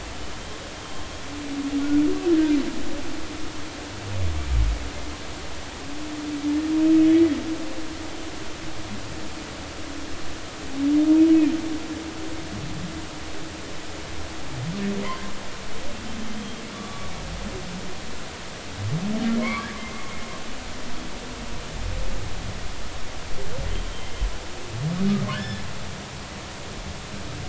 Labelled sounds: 2.3	2.6	humpback whale, 1.4 to 1.8 kHz
15.0	15.3	humpback whale, 0.93 to 1.1 kHz
16.4	17.1	humpback whale, 1.1 to 3.3 kHz
19.4	20.1	humpback whale, 0.93 to 2.2 kHz
25.3	25.6	humpback whale, 1.4 to 1.8 kHz

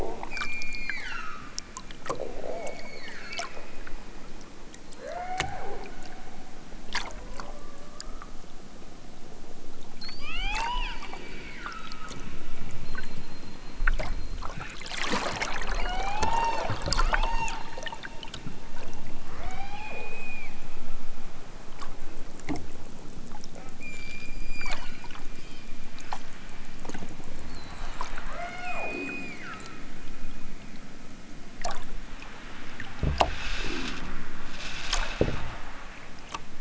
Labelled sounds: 0.3	1.6	killer whale, southern Alaska resident, 0.73 to 8.0 kHz
2.5	3.7	killer whale, southern Alaska resident, 0.92 to 7.3 kHz
4.9	5.8	killer whale, southern Alaska resident, 0.28 to 6.2 kHz
10.0	12.3	killer whale, southern Alaska resident, 0.32 to 8.0 kHz
15.7	16.8	killer whale, southern Alaska resident, 0.41 to 8.0 kHz
17.0	17.6	killer whale, southern Alaska resident, 0.41 to 8.0 kHz
19.3	21.0	killer whale, southern Alaska resident, 0.32 to 8.0 kHz
23.8	25.3	killer whale, southern Alaska resident, 1.1 to 8.0 kHz
28.3	29.8	killer whale, southern Alaska resident, 0.18 to 8.0 kHz

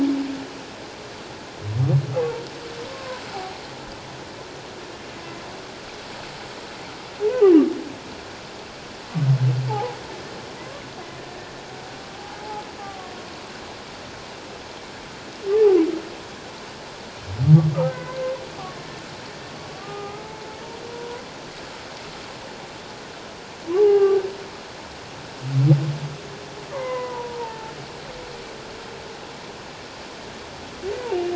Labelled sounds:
2.9	3.6	humpback whale, 0.78 to 1.1 kHz
9.7	10.0	humpback whale, 0.78 to 1.0 kHz
17.8	18.2	humpback whale, 1.5 to 2.1 kHz
19.8	20.5	humpback whale, 0.78 to 1.3 kHz
20.9	21.2	humpback whale, 0.94 to 1.0 kHz
23.8	24.2	humpback whale, 0.78 to 2.9 kHz
26.7	27.7	humpback whale, 0.81 to 2.1 kHz

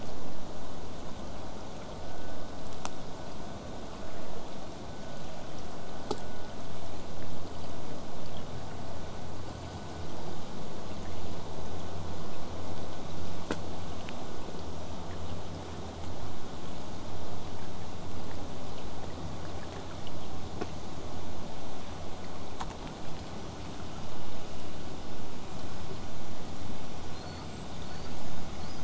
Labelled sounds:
0.0	5.0	vessel noise, 0 to 8.0 kHz
14.1	18.6	killer whale, 7.7 to 8.0 kHz
22.7	23.2	killer whale, 0.67 to 3.0 kHz
27.1	27.4	killer whale, whistle, 3.9 to 4.6 kHz
27.8	28.2	killer whale, whistle, 4.2 to 4.7 kHz
28.6	28.8	killer whale, whistle, 3.8 to 5.1 kHz

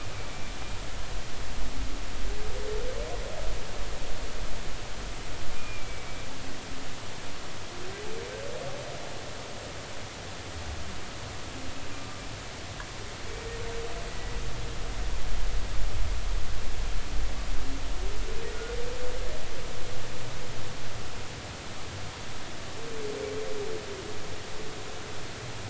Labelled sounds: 5.5	6.3	humpback whale, 2.2 to 2.5 kHz

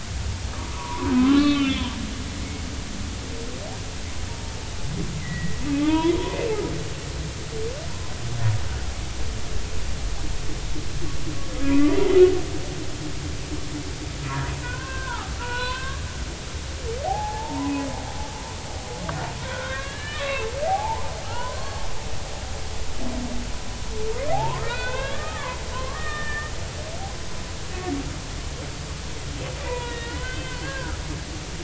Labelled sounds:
0.6	1.9	humpback whale, 0.90 to 4.1 kHz
5.2	6.3	humpback whale, 0.83 to 3.5 kHz
12.1	12.4	humpback whale, 2.8 to 3.1 kHz
14.6	16.1	humpback whale, 0.80 to 4.1 kHz
17.0	17.7	humpback whale, 0.80 to 1.1 kHz
19.4	21.8	humpback whale, 0.80 to 4.5 kHz
24.3	26.5	humpback whale, 0.80 to 4.1 kHz
29.6	31.0	humpback whale, 0.90 to 3.9 kHz

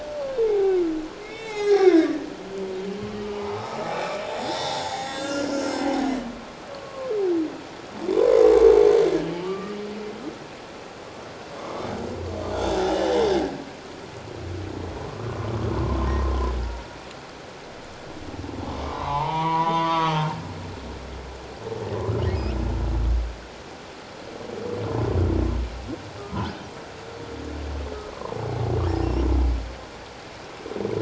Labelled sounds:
0.4	2.2	humpback whale, 0.78 to 4.1 kHz
3.1	5.5	humpback whale, 0.78 to 6.8 kHz
6.7	7.1	humpback whale, 1.0 to 1.2 kHz
8.2	8.6	humpback whale, 0.94 to 1.2 kHz
9.4	9.8	humpback whale, 1.1 to 1.3 kHz
12.5	13.4	humpback whale, 1.7 to 3.7 kHz
15.0	15.3	humpback whale, 0.91 to 1.2 kHz
15.8	16.5	humpback whale, 0.94 to 1.2 kHz
18.8	20.4	humpback whale, 0.78 to 4.7 kHz
26.2	26.4	humpback whale, 1.2 to 1.3 kHz

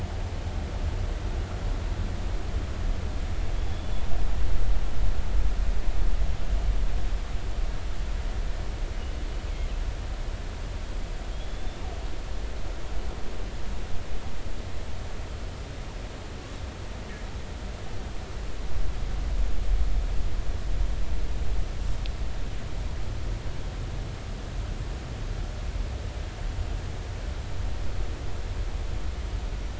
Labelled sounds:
11.3	11.8	killer whale, northern resident, G clan, GG subclan, call N28, 3.2 to 3.6 kHz

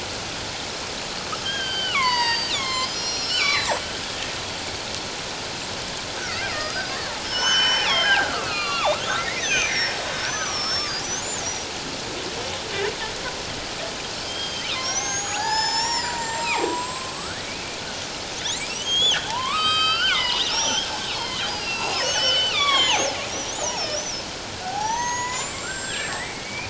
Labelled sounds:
1.4	3.9	killer whale, northern resident, G clan, 0.88 to 8.0 kHz
6.2	11.0	killer whale, northern resident, G clan, 0.78 to 6.6 kHz
11.4	11.7	killer whale, northern resident, G clan, 5.6 to 5.9 kHz
14.2	17.7	killer whale, northern resident, G clan, 0.78 to 8.0 kHz
18.6	26.6	killer whale, northern resident, G clan, 0.78 to 8.0 kHz

